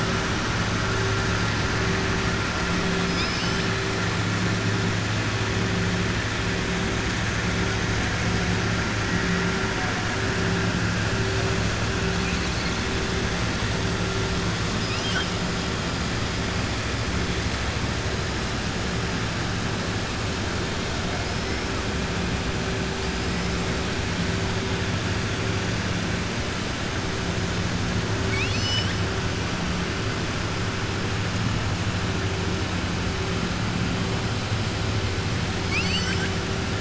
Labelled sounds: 3.0	3.7	killer whale, southern resident, 2.3 to 7.8 kHz
28.2	29.0	killer whale, southern resident, 1.8 to 7.9 kHz
35.6	36.3	killer whale, southern resident, 1.5 to 7.9 kHz

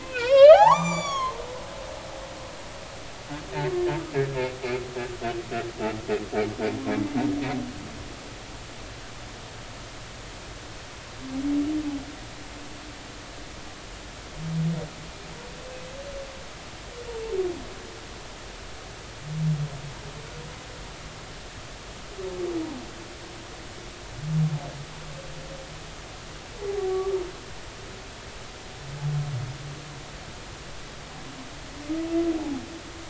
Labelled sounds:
0.0	1.3	humpback whale, 0.80 to 7.3 kHz
26.9	27.1	humpback whale, 1.1 to 1.2 kHz

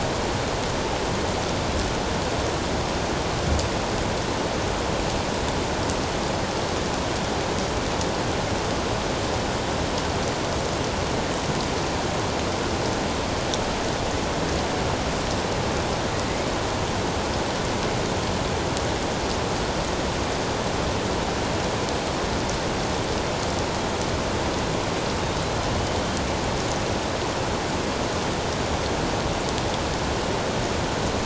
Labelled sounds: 25.8	26.0	killer whale, northern resident, A clan, AA subclan, 2.9 to 3.2 kHz

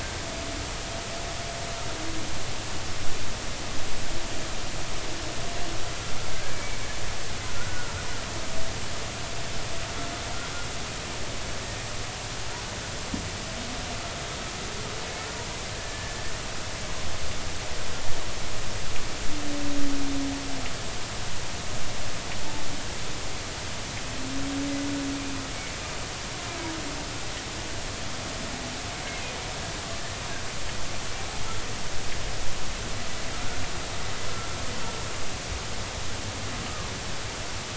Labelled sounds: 6.5	6.8	humpback whale, 2.2 to 2.3 kHz
7.6	7.9	humpback whale, 1.3 to 1.5 kHz
15.8	16.2	humpback whale, 1.7 to 1.9 kHz

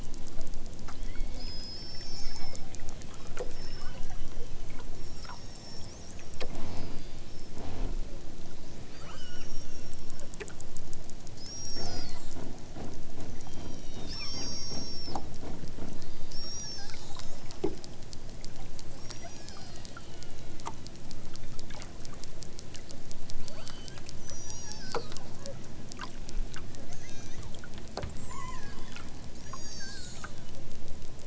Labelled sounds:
1.0	2.7	killer whale, southern Alaska resident, 1.7 to 8.0 kHz
3.1	4.6	killer whale, southern Alaska resident, 1.6 to 8.0 kHz
5.0	6.0	killer whale, southern Alaska resident, 1.2 to 8.0 kHz
6.5	7.5	killer whale, southern Alaska resident, 1.1 to 5.7 kHz
9.0	10.2	killer whale, southern Alaska resident, 0.60 to 8.0 kHz
11.3	12.4	killer whale, southern Alaska resident, 0.92 to 8.0 kHz
13.3	15.2	killer whale, southern Alaska resident, 0.69 to 8.0 kHz
19.0	20.6	killer whale, southern Alaska resident, 1.1 to 8.0 kHz
23.4	25.3	killer whale, southern Alaska resident, 1.0 to 8.0 kHz
26.9	27.4	killer whale, southern Alaska resident, 1.3 to 6.9 kHz
28.0	28.8	killer whale, southern Alaska resident, 0.60 to 8.0 kHz
29.4	30.5	killer whale, southern Alaska resident, 1.1 to 8.0 kHz

